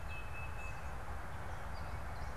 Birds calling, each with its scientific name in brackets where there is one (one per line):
unidentified bird
Tufted Titmouse (Baeolophus bicolor)